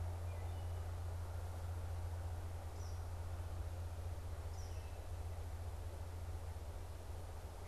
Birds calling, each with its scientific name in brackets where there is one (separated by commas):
Eastern Kingbird (Tyrannus tyrannus), Wood Thrush (Hylocichla mustelina)